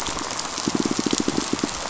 {"label": "biophony, pulse", "recorder": "SoundTrap 500"}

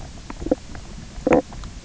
{"label": "biophony, knock croak", "recorder": "SoundTrap 300"}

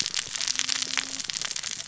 {"label": "biophony, cascading saw", "recorder": "SoundTrap 600 or HydroMoth"}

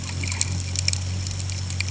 {"label": "anthrophony, boat engine", "recorder": "HydroMoth"}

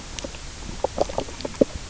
{"label": "biophony, knock croak", "recorder": "SoundTrap 300"}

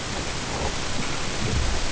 {"label": "ambient", "recorder": "HydroMoth"}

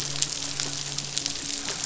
{"label": "biophony, midshipman", "recorder": "SoundTrap 500"}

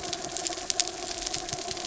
{"label": "anthrophony, mechanical", "recorder": "SoundTrap 300"}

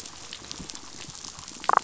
{"label": "biophony, damselfish", "recorder": "SoundTrap 500"}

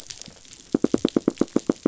{"label": "biophony, knock", "recorder": "SoundTrap 500"}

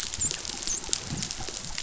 {"label": "biophony, dolphin", "recorder": "SoundTrap 500"}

